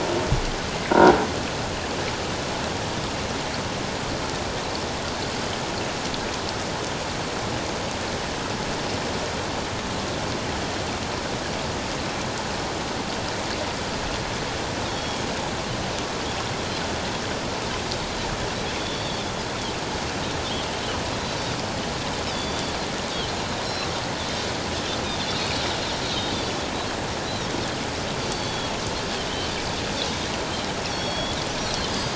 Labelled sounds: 14.9	15.2	Pacific white-sided dolphin, 3.2 to 3.4 kHz
18.8	19.2	Pacific white-sided dolphin, 3.3 to 4.6 kHz
22.3	22.7	Pacific white-sided dolphin, 3.3 to 4.9 kHz
23.6	23.9	Pacific white-sided dolphin, 3.8 to 4.2 kHz
26.0	26.5	Pacific white-sided dolphin, 3.4 to 4.2 kHz
28.2	28.7	Pacific white-sided dolphin, 3.2 to 4.6 kHz
29.3	29.5	Pacific white-sided dolphin, 2.9 to 3.3 kHz
30.8	32.1	Pacific white-sided dolphin, 3.2 to 5.8 kHz

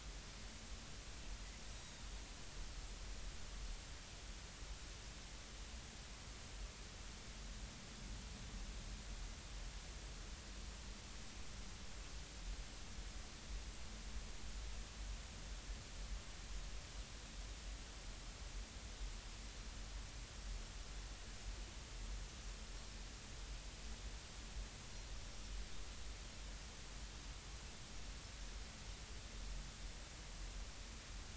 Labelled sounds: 1.7	2.0	Pacific white-sided dolphin, 3.7 to 5.9 kHz

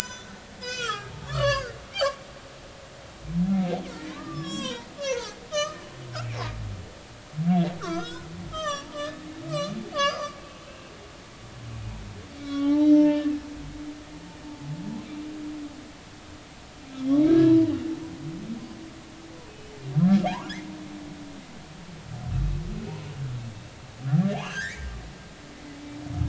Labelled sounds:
0.0	0.3	humpback whale, 3.9 to 4.1 kHz
0.6	1.8	humpback whale, 0.99 to 7.1 kHz
3.4	6.4	humpback whale, 0.80 to 7.8 kHz
7.8	9.2	humpback whale, 0.96 to 6.4 kHz
9.9	10.9	humpback whale, 1.0 to 6.3 kHz
12.4	13.3	humpback whale, 0.80 to 6.0 kHz
17.3	17.7	humpback whale, 0.90 to 1.8 kHz
20.2	20.5	humpback whale, 0.80 to 1.2 kHz
22.3	22.6	humpback whale, 3.7 to 3.9 kHz
24.3	24.9	humpback whale, 1.5 to 3.0 kHz

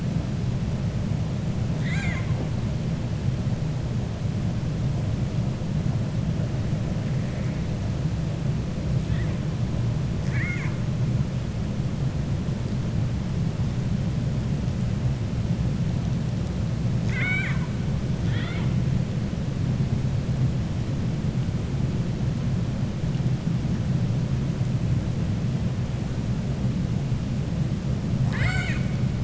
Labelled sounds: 1.7	2.5	killer whale, 0.71 to 7.9 kHz
10.2	10.8	killer whale, 0.97 to 2.7 kHz
16.9	17.7	killer whale, 0.99 to 7.7 kHz
28.2	28.9	killer whale, 0.74 to 7.8 kHz

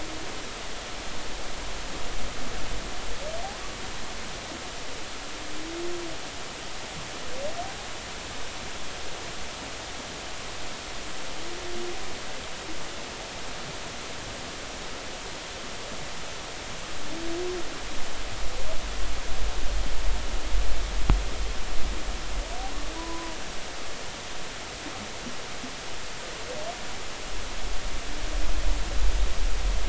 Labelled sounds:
23.0	23.4	humpback whale, 0.93 to 1.1 kHz

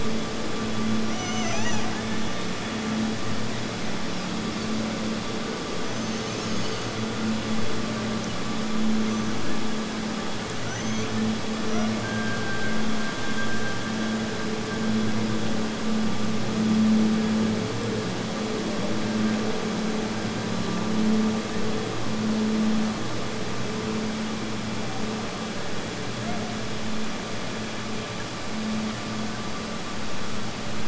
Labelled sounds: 1.0	2.6	killer whale, Bigg's (transient), Gulf of Alaska transient, 0.50 to 6.6 kHz
11.6	15.3	killer whale, Bigg's (transient), Gulf of Alaska transient, 1.1 to 1.9 kHz

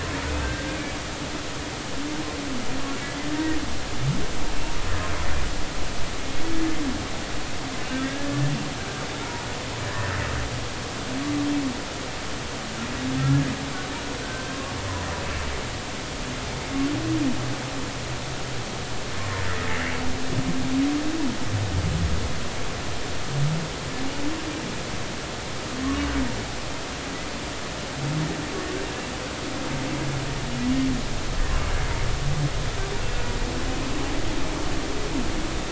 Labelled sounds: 0.3	0.8	humpback whale, 1.5 to 2.7 kHz
3.2	3.6	humpback whale, 1.8 to 2.0 kHz
7.9	8.3	humpback whale, 1.5 to 1.8 kHz
14.2	14.6	humpback whale, 1.5 to 1.6 kHz

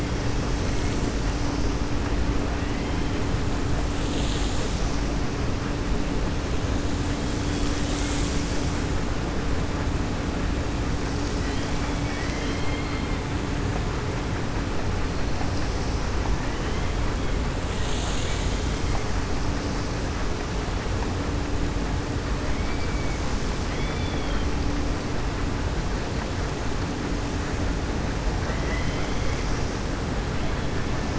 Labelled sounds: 11.7	13.2	killer whale, 1.4 to 5.0 kHz
23.6	24.5	killer whale, 1.9 to 4.3 kHz
28.4	29.4	killer whale, 0.64 to 3.4 kHz

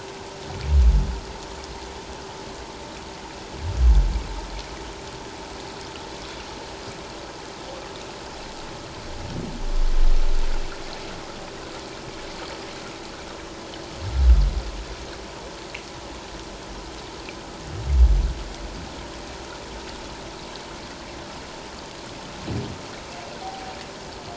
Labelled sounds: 23.4	23.8	humpback whale, 0.78 to 0.84 kHz

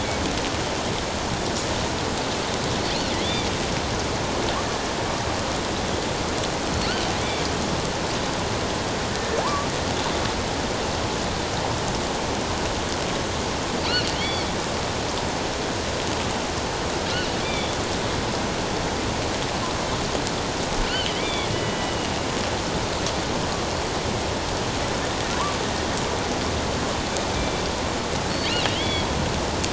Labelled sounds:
3.2	3.5	killer whale, offshore, 3.2 to 3.6 kHz
6.7	7.0	killer whale, offshore, 4.2 to 4.7 kHz
9.1	9.7	killer whale, offshore, 0.78 to 1.8 kHz
14.1	14.5	killer whale, offshore, 2.1 to 4.6 kHz
17.4	17.8	killer whale, offshore, 2.1 to 3.6 kHz
20.8	22.0	killer whale, offshore, 1.9 to 3.6 kHz
27.3	27.6	killer whale, offshore, 2.3 to 2.4 kHz
28.8	29.1	killer whale, offshore, 2.0 to 3.5 kHz

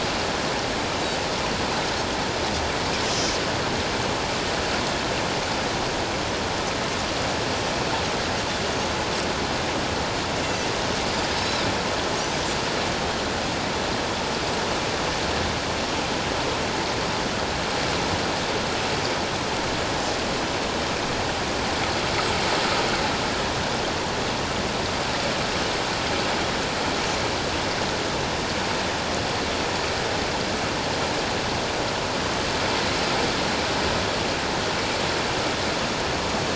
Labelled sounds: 11.4	11.6	Pacific white-sided dolphin, 3.8 to 4.1 kHz

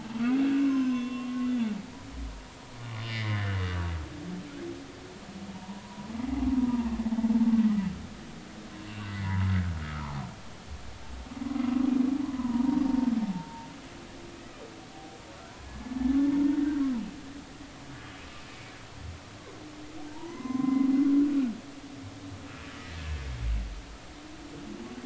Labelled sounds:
0.1	1.5	humpback whale, 0.99 to 6.4 kHz
3.1	3.6	humpback whale, 1.7 to 2.4 kHz
5.5	6.1	humpback whale, 0.86 to 1.1 kHz
6.6	6.9	humpback whale, 0.86 to 1.0 kHz
8.9	10.2	humpback whale, 0.80 to 2.9 kHz
12.2	13.7	humpback whale, 0.83 to 1.2 kHz
16.6	17.0	humpback whale, 1.3 to 2.0 kHz
20.1	20.9	humpback whale, 0.86 to 6.2 kHz

